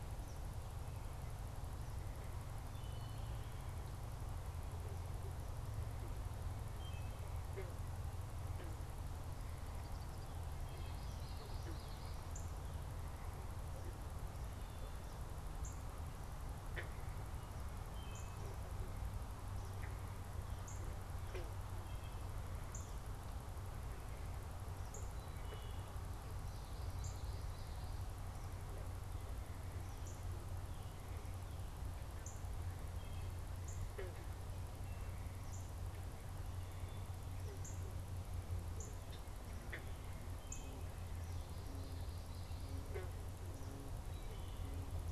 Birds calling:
Common Yellowthroat (Geothlypis trichas), Eastern Kingbird (Tyrannus tyrannus), Northern Cardinal (Cardinalis cardinalis), Wood Thrush (Hylocichla mustelina)

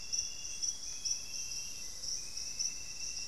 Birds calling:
Black-faced Antthrush (Formicarius analis), Buff-breasted Wren (Cantorchilus leucotis), Amazonian Grosbeak (Cyanoloxia rothschildii)

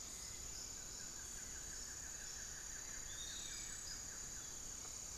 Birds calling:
Buff-throated Woodcreeper (Xiphorhynchus guttatus), Long-winged Antwren (Myrmotherula longipennis), Piratic Flycatcher (Legatus leucophaius), Hauxwell's Thrush (Turdus hauxwelli)

